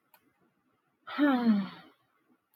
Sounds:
Sigh